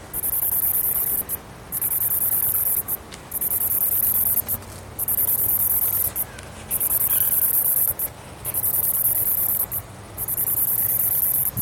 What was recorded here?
Myopsalta mackinlayi, a cicada